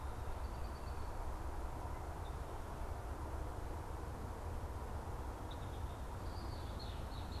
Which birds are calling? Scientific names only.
Agelaius phoeniceus